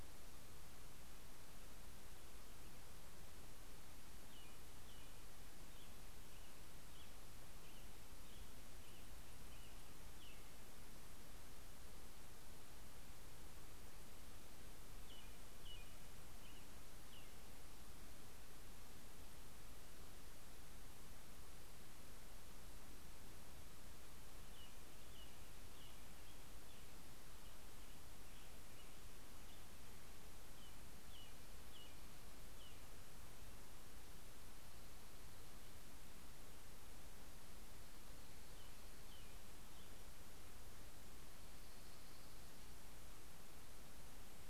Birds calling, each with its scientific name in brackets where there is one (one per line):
Dark-eyed Junco (Junco hyemalis)
American Robin (Turdus migratorius)